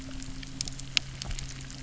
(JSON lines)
{"label": "anthrophony, boat engine", "recorder": "SoundTrap 300"}